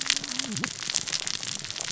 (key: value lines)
label: biophony, cascading saw
recorder: SoundTrap 600 or HydroMoth